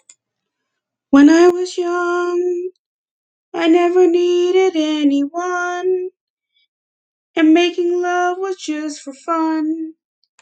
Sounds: Sigh